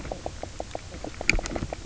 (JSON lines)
{"label": "biophony, knock croak", "recorder": "SoundTrap 300"}